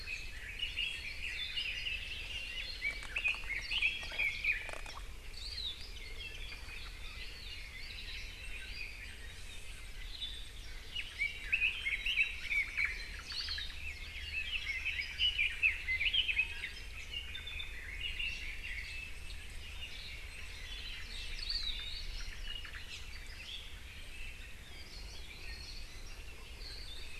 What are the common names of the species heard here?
Red-billed Leiothrix, Hawaii Akepa, Omao, Iiwi, Apapane